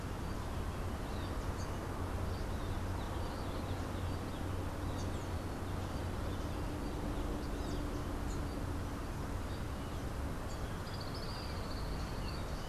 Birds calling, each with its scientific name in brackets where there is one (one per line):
Tropical Kingbird (Tyrannus melancholicus)